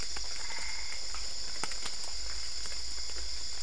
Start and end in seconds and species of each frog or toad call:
0.3	1.1	Boana albopunctata
Brazil, 11:30pm

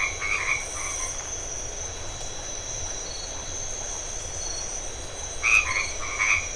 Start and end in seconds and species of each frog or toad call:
0.0	1.1	Boana albomarginata
5.4	6.5	Boana albomarginata
Brazil, 8:30pm

